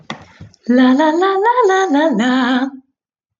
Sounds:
Sigh